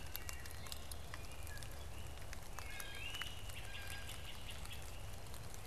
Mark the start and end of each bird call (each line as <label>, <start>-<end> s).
Blue Jay (Cyanocitta cristata), 0.2-3.2 s
Great Crested Flycatcher (Myiarchus crinitus), 2.7-5.0 s